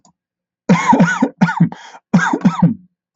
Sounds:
Cough